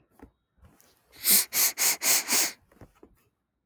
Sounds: Sniff